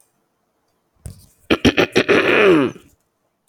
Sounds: Throat clearing